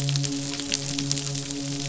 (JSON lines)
{"label": "biophony, midshipman", "recorder": "SoundTrap 500"}